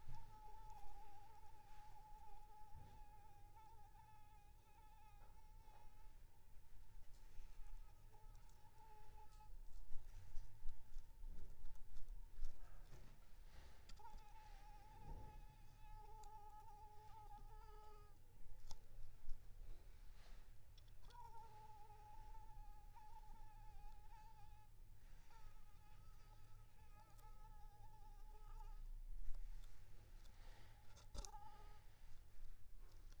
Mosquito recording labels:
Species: Anopheles arabiensis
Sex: female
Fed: unfed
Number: one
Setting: cup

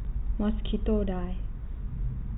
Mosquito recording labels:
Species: mosquito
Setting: cup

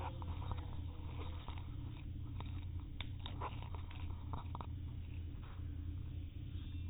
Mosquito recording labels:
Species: no mosquito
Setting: cup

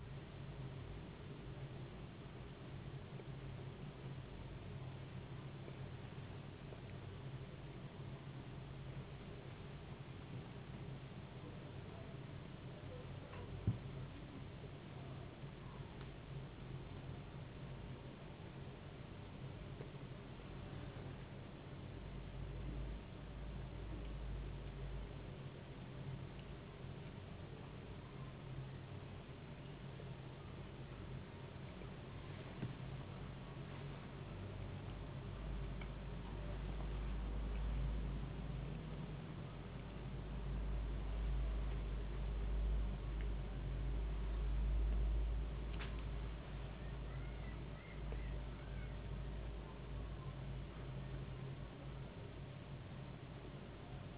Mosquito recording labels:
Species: no mosquito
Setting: insect culture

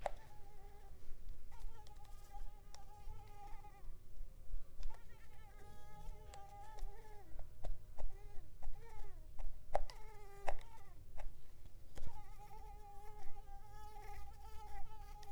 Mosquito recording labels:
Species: Mansonia africanus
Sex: female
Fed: unfed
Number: one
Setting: cup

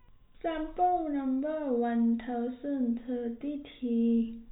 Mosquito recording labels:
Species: no mosquito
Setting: cup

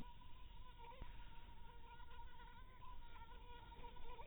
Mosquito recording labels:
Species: mosquito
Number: one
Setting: cup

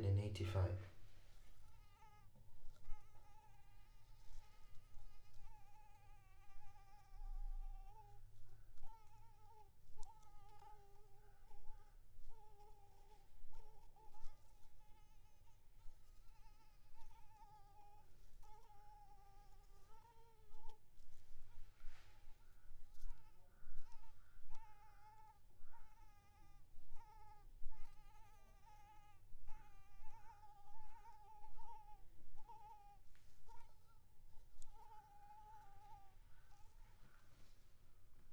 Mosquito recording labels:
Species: Anopheles maculipalpis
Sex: female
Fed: unfed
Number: one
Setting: cup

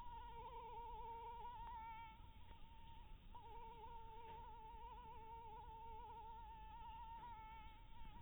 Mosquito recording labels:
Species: Anopheles maculatus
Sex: female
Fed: blood-fed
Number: one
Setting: cup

